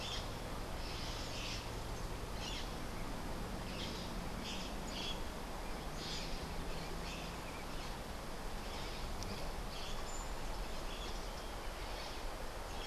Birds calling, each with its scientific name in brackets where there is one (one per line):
White-crowned Parrot (Pionus senilis)